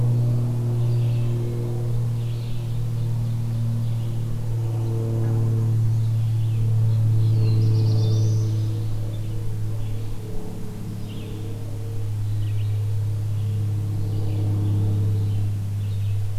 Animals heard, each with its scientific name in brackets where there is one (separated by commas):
Black-throated Blue Warbler (Setophaga caerulescens), Red-eyed Vireo (Vireo olivaceus)